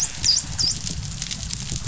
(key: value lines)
label: biophony, dolphin
recorder: SoundTrap 500